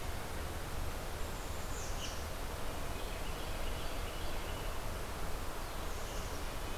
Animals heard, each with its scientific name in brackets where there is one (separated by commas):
Black-capped Chickadee (Poecile atricapillus), Carolina Wren (Thryothorus ludovicianus)